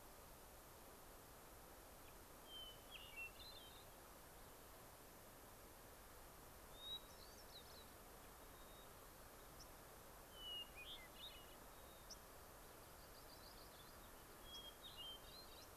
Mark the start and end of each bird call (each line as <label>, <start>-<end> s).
Hermit Thrush (Catharus guttatus), 2.4-4.0 s
Hermit Thrush (Catharus guttatus), 6.7-8.0 s
White-crowned Sparrow (Zonotrichia leucophrys), 8.4-8.9 s
White-crowned Sparrow (Zonotrichia leucophrys), 9.5-9.7 s
Hermit Thrush (Catharus guttatus), 10.3-11.6 s
White-crowned Sparrow (Zonotrichia leucophrys), 11.6-12.7 s
Yellow-rumped Warbler (Setophaga coronata), 12.8-14.3 s
Hermit Thrush (Catharus guttatus), 14.4-15.7 s
White-crowned Sparrow (Zonotrichia leucophrys), 14.5-14.6 s
White-crowned Sparrow (Zonotrichia leucophrys), 15.6-15.7 s